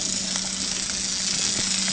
{"label": "anthrophony, boat engine", "recorder": "HydroMoth"}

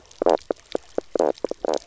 {"label": "biophony, knock croak", "recorder": "SoundTrap 300"}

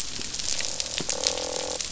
{"label": "biophony, croak", "recorder": "SoundTrap 500"}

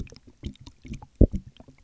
{"label": "geophony, waves", "recorder": "SoundTrap 300"}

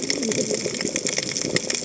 {"label": "biophony, cascading saw", "recorder": "HydroMoth"}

